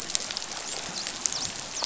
{"label": "biophony, dolphin", "recorder": "SoundTrap 500"}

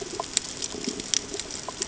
{"label": "ambient", "recorder": "HydroMoth"}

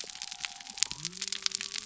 {"label": "biophony", "recorder": "SoundTrap 300"}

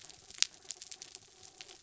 {"label": "anthrophony, mechanical", "recorder": "SoundTrap 300"}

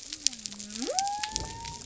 {"label": "biophony", "recorder": "SoundTrap 300"}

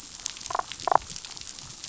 {"label": "biophony, damselfish", "recorder": "SoundTrap 500"}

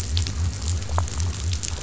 {"label": "biophony", "recorder": "SoundTrap 500"}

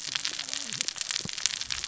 {"label": "biophony, cascading saw", "recorder": "SoundTrap 600 or HydroMoth"}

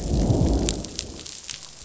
{"label": "biophony, growl", "recorder": "SoundTrap 500"}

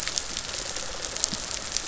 {"label": "biophony, rattle response", "recorder": "SoundTrap 500"}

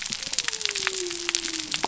{"label": "biophony", "recorder": "SoundTrap 300"}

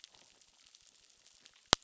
{"label": "biophony, crackle", "recorder": "SoundTrap 600"}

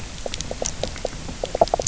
{"label": "biophony, knock croak", "recorder": "SoundTrap 300"}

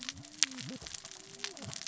{"label": "biophony, cascading saw", "recorder": "SoundTrap 600 or HydroMoth"}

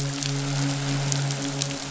{"label": "biophony, midshipman", "recorder": "SoundTrap 500"}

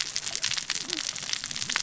{"label": "biophony, cascading saw", "recorder": "SoundTrap 600 or HydroMoth"}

